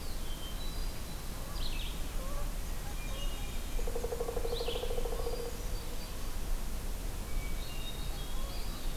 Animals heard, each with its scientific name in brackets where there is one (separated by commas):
Pileated Woodpecker (Dryocopus pileatus), Eastern Wood-Pewee (Contopus virens), Hermit Thrush (Catharus guttatus), Canada Goose (Branta canadensis), Red-eyed Vireo (Vireo olivaceus)